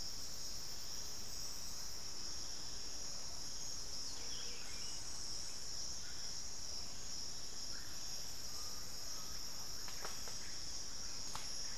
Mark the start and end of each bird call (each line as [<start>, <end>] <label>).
[4.00, 5.09] Buff-throated Saltator (Saltator maximus)
[5.79, 11.77] Russet-backed Oropendola (Psarocolius angustifrons)
[8.39, 10.29] Undulated Tinamou (Crypturellus undulatus)